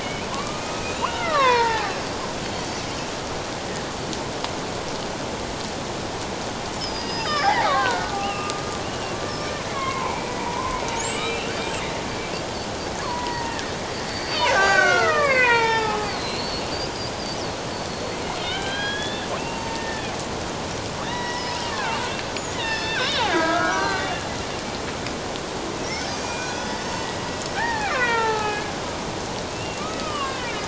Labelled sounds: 0.0	1.9	killer whale, Bigg's (transient), 0.78 to 4.2 kHz
2.4	3.0	killer whale, Bigg's (transient), 4.3 to 5.9 kHz
6.8	11.5	killer whale, Bigg's (transient), 0.78 to 7.8 kHz
13.0	16.6	killer whale, Bigg's (transient), 0.78 to 7.1 kHz
17.9	20.0	killer whale, Bigg's (transient), 0.88 to 4.5 kHz
21.0	22.0	killer whale, Bigg's (transient), 0.91 to 5.6 kHz
22.4	24.2	killer whale, Bigg's (transient), 0.88 to 7.0 kHz
25.9	26.9	killer whale, Bigg's (transient), 1.4 to 6.5 kHz
27.6	28.8	killer whale, Bigg's (transient), 0.78 to 4.0 kHz
29.5	30.6	killer whale, Bigg's (transient), 0.91 to 2.8 kHz

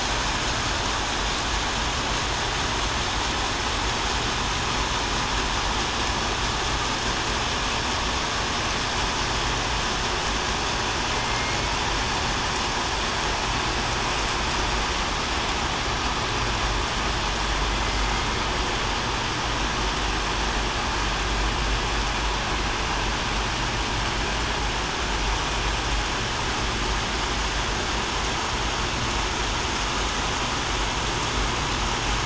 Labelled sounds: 11.1	11.6	killer whale, southern resident, 2.1 to 2.2 kHz

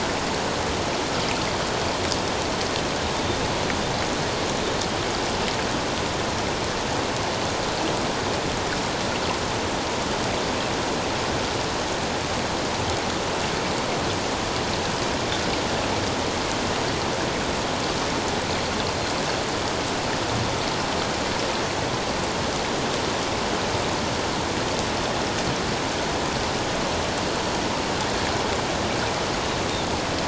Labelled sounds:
18.9	19.2	Pacific white-sided dolphin, 4.1 to 4.2 kHz

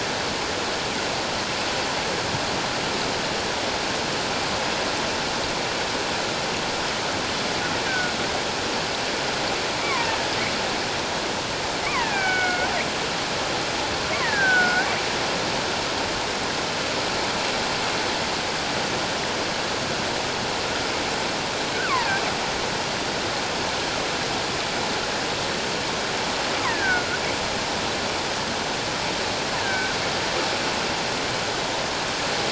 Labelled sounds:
7.9	8.1	killer whale, offshore, call OFF17, 1.4 to 1.6 kHz
9.8	10.2	killer whale, offshore, call OFF17, 0.84 to 2.4 kHz
11.8	12.7	killer whale, offshore, call OFF17, 0.88 to 3.1 kHz
14.2	14.9	killer whale, offshore, call OFF17, 1.4 to 2.1 kHz
21.7	22.2	killer whale, offshore, call OFF17, 0.78 to 2.6 kHz
26.7	27.1	killer whale, offshore, call OFF17, 1.4 to 2.0 kHz
29.6	30.0	killer whale, offshore, call OFF17, 1.4 to 1.8 kHz

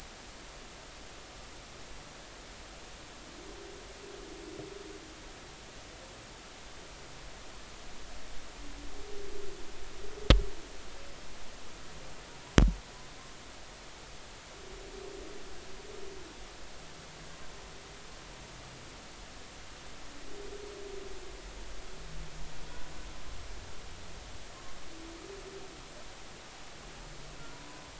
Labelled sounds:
27.5	27.9	humpback whale, 0.93 to 1.1 kHz

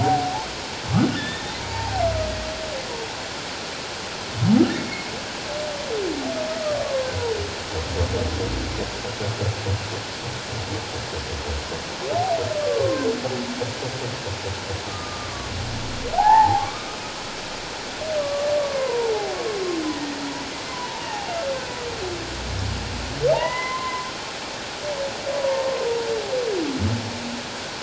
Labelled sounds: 0.0	0.5	humpback whale, 0.78 to 0.94 kHz
1.2	2.0	humpback whale, 0.78 to 3.8 kHz
4.8	5.1	humpback whale, 2.1 to 2.2 kHz
6.8	7.1	humpback whale, 0.97 to 1.2 kHz
12.6	13.1	humpback whale, 1.0 to 1.2 kHz
14.9	15.5	humpback whale, 1.1 to 1.3 kHz
16.1	16.9	humpback whale, 0.78 to 1.9 kHz
18.2	19.1	humpback whale, 0.81 to 1.2 kHz
20.7	21.3	humpback whale, 0.78 to 1.1 kHz
23.3	24.1	humpback whale, 0.78 to 2.1 kHz
25.4	25.7	humpback whale, 0.88 to 1.0 kHz

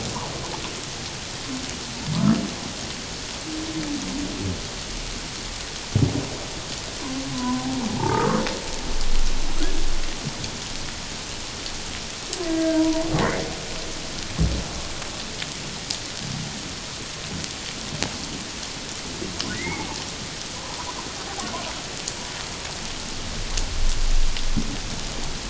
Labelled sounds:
7.3	8.4	humpback whale, 0.81 to 1.4 kHz
12.4	13.1	humpback whale, 0.91 to 2.0 kHz
19.5	19.9	humpback whale, 0.78 to 2.3 kHz
20.6	20.9	humpback whale, 0.78 to 1.2 kHz

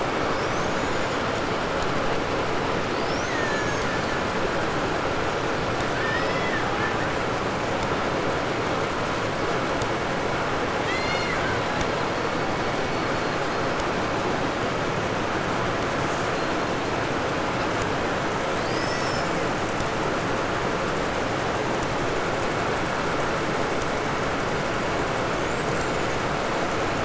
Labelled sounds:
0.0	1.4	killer whale, Bigg's (transient), 4.1 to 7.6 kHz
2.6	4.5	killer whale, Bigg's (transient), 1.1 to 7.3 kHz
5.9	7.2	killer whale, Bigg's (transient), call T01, 0.51 to 5.7 kHz
10.7	11.9	killer whale, Bigg's (transient), call T01, 1.0 to 8.0 kHz
18.5	19.5	killer whale, 1.3 to 8.0 kHz
25.1	26.4	killer whale, 5.7 to 8.0 kHz

